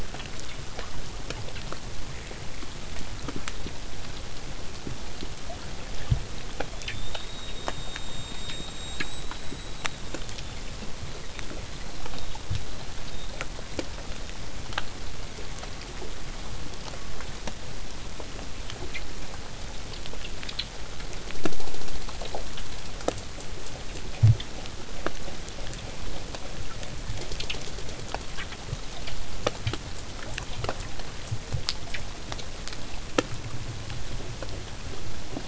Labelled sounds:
6.7	10.7	killer whale, southern resident, 3.2 to 8.0 kHz
11.0	14.5	killer whale, southern resident, 3.4 to 4.5 kHz

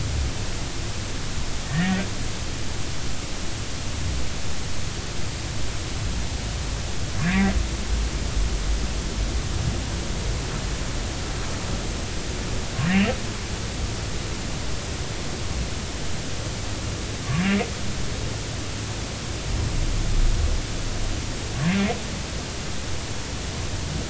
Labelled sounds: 1.7	2.0	humpback whale, 1.7 to 2.0 kHz
7.3	7.6	humpback whale, 1.9 to 2.2 kHz

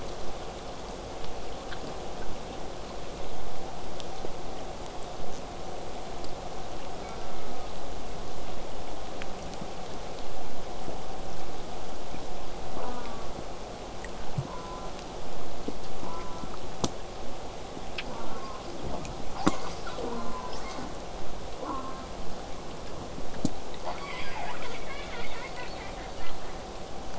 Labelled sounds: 0.2	5.2	vessel noise, 0 to 8.0 kHz
7.0	7.8	killer whale, southern resident, J pod, call S04, 0.70 to 2.3 kHz
8.1	12.7	killer whale, southern resident, J pod, 5.1 to 8.0 kHz
12.7	13.4	killer whale, southern resident, J pod, call S04, 0.15 to 1.7 kHz
14.4	15.0	killer whale, southern resident, J pod, call S04, 0.31 to 1.5 kHz
16.0	16.5	killer whale, southern resident, J pod, call S04, 0.19 to 1.5 kHz
18.1	18.7	killer whale, southern resident, J pod, call S04, 0.12 to 1.7 kHz
19.3	20.9	killer whale, southern resident, J pod, 0.12 to 8.0 kHz
20.0	20.5	killer whale, southern resident, J pod, call S04, 0.12 to 1.5 kHz
21.6	22.2	killer whale, southern resident, J pod, call S04, 0.12 to 1.7 kHz
24.0	26.6	killer whale, southern resident, J pod, call S10, 0.43 to 8.0 kHz

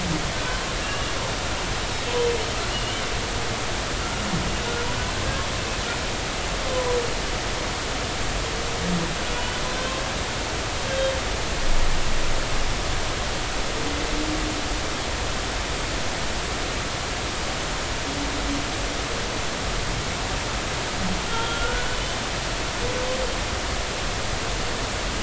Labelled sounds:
0.8	1.1	humpback whale, 1.6 to 2.9 kHz
2.7	3.0	humpback whale, 2.8 to 3.0 kHz
4.6	4.9	humpback whale, 1.4 to 1.5 kHz
6.7	7.0	humpback whale, 0.93 to 1.1 kHz
21.2	22.0	humpback whale, 1.3 to 3.3 kHz

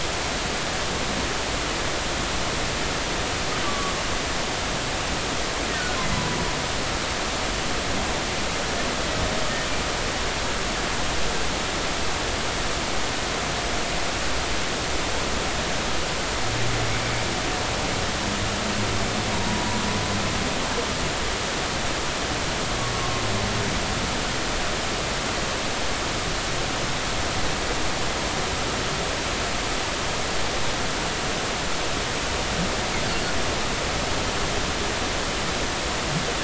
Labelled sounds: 3.6	3.9	humpback whale, 1.1 to 1.2 kHz
5.7	6.4	humpback whale, 0.93 to 1.6 kHz
19.3	19.8	humpback whale, 0.90 to 1.0 kHz

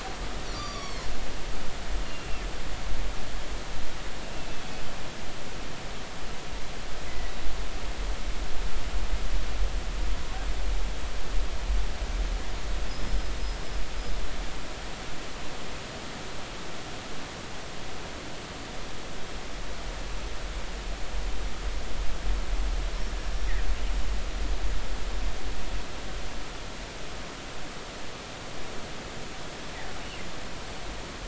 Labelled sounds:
0.5	1.1	killer whale, northern resident, G clan, 1.1 to 6.0 kHz
2.0	2.4	killer whale, northern resident, G clan, 2.6 to 2.9 kHz
4.3	4.7	killer whale, northern resident, G clan, 2.5 to 2.8 kHz
7.1	7.3	killer whale, northern resident, G clan, 1.9 to 2.1 kHz
12.9	13.3	killer whale, northern resident, G clan, 5.0 to 5.3 kHz

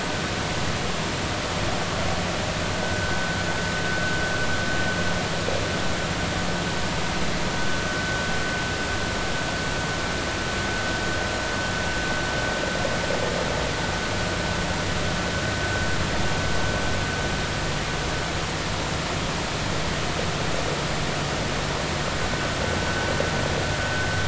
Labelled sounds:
2.8	3.2	vessel noise, 1.5 to 1.6 kHz

